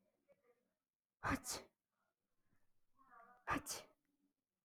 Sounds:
Sneeze